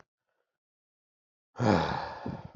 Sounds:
Sigh